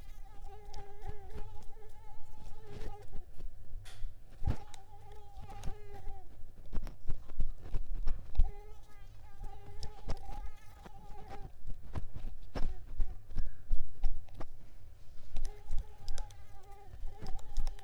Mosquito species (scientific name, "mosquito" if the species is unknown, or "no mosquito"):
Mansonia uniformis